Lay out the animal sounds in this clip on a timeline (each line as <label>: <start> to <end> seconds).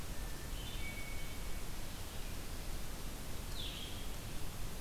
Blue-headed Vireo (Vireo solitarius): 0.0 to 4.8 seconds
Hermit Thrush (Catharus guttatus): 0.2 to 1.8 seconds